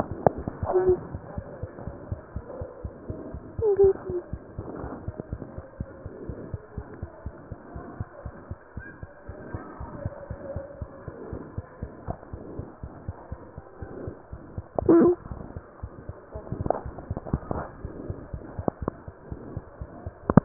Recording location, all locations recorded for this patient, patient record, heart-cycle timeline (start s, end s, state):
mitral valve (MV)
aortic valve (AV)+mitral valve (MV)
#Age: Child
#Sex: Female
#Height: 77.0 cm
#Weight: 8.9 kg
#Pregnancy status: False
#Murmur: Present
#Murmur locations: aortic valve (AV)+mitral valve (MV)
#Most audible location: aortic valve (AV)
#Systolic murmur timing: Holosystolic
#Systolic murmur shape: Plateau
#Systolic murmur grading: I/VI
#Systolic murmur pitch: Low
#Systolic murmur quality: Blowing
#Diastolic murmur timing: nan
#Diastolic murmur shape: nan
#Diastolic murmur grading: nan
#Diastolic murmur pitch: nan
#Diastolic murmur quality: nan
#Outcome: Abnormal
#Campaign: 2015 screening campaign
0.00	5.77	unannotated
5.77	5.88	S1
5.88	6.00	systole
6.00	6.10	S2
6.10	6.26	diastole
6.26	6.40	S1
6.40	6.50	systole
6.50	6.62	S2
6.62	6.78	diastole
6.78	6.90	S1
6.90	7.00	systole
7.00	7.08	S2
7.08	7.24	diastole
7.24	7.34	S1
7.34	7.49	systole
7.49	7.56	S2
7.56	7.74	diastole
7.74	7.88	S1
7.88	7.98	systole
7.98	8.08	S2
8.08	8.26	diastole
8.26	8.38	S1
8.38	8.48	systole
8.48	8.58	S2
8.58	8.75	diastole
8.75	8.84	S1
8.84	9.00	systole
9.00	9.10	S2
9.10	9.27	diastole
9.27	9.36	S1
9.36	9.52	systole
9.52	9.62	S2
9.62	9.78	diastole
9.78	9.88	S1
9.88	10.03	systole
10.03	10.11	S2
10.11	10.29	diastole
10.29	10.38	S1
10.38	10.54	systole
10.54	10.64	S2
10.64	10.80	diastole
10.80	10.89	S1
10.89	11.06	systole
11.06	11.16	S2
11.16	11.32	diastole
11.32	11.40	S1
11.40	11.56	systole
11.56	11.66	S2
11.66	11.81	diastole
11.81	11.90	S1
11.90	12.06	systole
12.06	12.16	S2
12.16	12.32	diastole
12.32	12.39	S1
12.39	12.57	systole
12.57	12.63	S2
12.63	12.82	diastole
12.82	12.90	S1
12.90	13.06	systole
13.06	13.14	S2
13.14	13.31	diastole
13.31	13.38	S1
13.38	13.56	systole
13.56	13.64	S2
13.64	13.80	diastole
13.80	13.89	S1
13.89	14.06	systole
14.06	14.16	S2
14.16	14.32	diastole
14.32	14.39	S1
14.39	20.45	unannotated